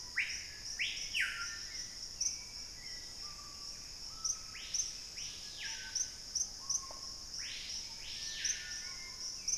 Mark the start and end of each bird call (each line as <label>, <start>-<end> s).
Black-faced Antthrush (Formicarius analis), 0.0-1.4 s
Gray Antbird (Cercomacra cinerascens), 0.0-5.2 s
Hauxwell's Thrush (Turdus hauxwelli), 0.0-9.6 s
Screaming Piha (Lipaugus vociferans), 0.0-9.6 s